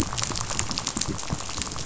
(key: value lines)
label: biophony, rattle
recorder: SoundTrap 500